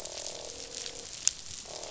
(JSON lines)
{"label": "biophony, croak", "recorder": "SoundTrap 500"}